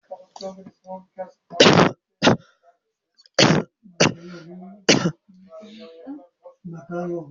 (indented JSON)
{
  "expert_labels": [
    {
      "quality": "good",
      "cough_type": "wet",
      "dyspnea": false,
      "wheezing": false,
      "stridor": false,
      "choking": false,
      "congestion": false,
      "nothing": true,
      "diagnosis": "lower respiratory tract infection",
      "severity": "mild"
    }
  ],
  "gender": "male",
  "respiratory_condition": true,
  "fever_muscle_pain": true,
  "status": "COVID-19"
}